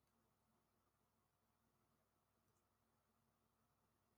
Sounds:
Cough